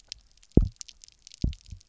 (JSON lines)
{"label": "biophony, double pulse", "recorder": "SoundTrap 300"}